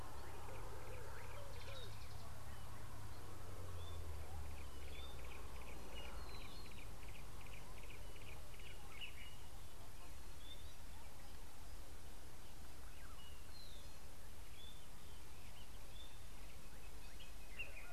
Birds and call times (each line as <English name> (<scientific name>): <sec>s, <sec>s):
Yellow-breasted Apalis (Apalis flavida): 7.5s